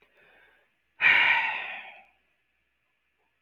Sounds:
Sigh